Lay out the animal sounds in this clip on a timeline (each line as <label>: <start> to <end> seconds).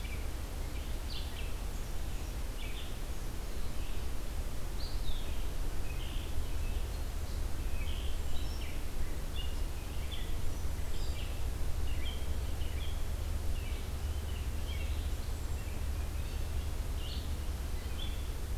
Red-eyed Vireo (Vireo olivaceus): 0.0 to 18.6 seconds
Hermit Thrush (Catharus guttatus): 8.0 to 8.5 seconds
Hermit Thrush (Catharus guttatus): 10.7 to 11.3 seconds
Hermit Thrush (Catharus guttatus): 15.1 to 15.8 seconds